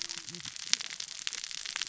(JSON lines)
{"label": "biophony, cascading saw", "recorder": "SoundTrap 600 or HydroMoth"}